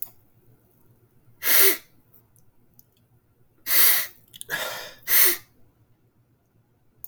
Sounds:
Sniff